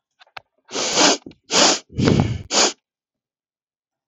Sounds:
Sniff